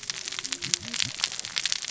{"label": "biophony, cascading saw", "recorder": "SoundTrap 600 or HydroMoth"}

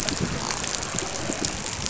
{"label": "biophony, dolphin", "recorder": "SoundTrap 500"}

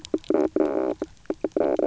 {"label": "biophony, knock croak", "recorder": "SoundTrap 300"}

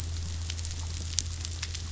{"label": "anthrophony, boat engine", "recorder": "SoundTrap 500"}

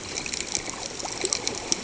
{"label": "ambient", "recorder": "HydroMoth"}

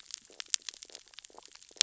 {"label": "biophony, stridulation", "recorder": "SoundTrap 600 or HydroMoth"}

